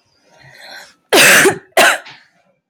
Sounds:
Cough